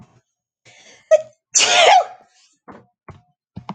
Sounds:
Sneeze